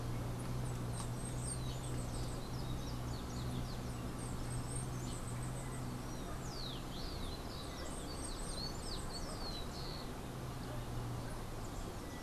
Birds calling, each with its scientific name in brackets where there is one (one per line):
Bananaquit (Coereba flaveola)
Rufous-collared Sparrow (Zonotrichia capensis)